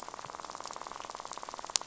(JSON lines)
{"label": "biophony, rattle", "recorder": "SoundTrap 500"}